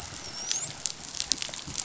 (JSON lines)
{"label": "biophony, dolphin", "recorder": "SoundTrap 500"}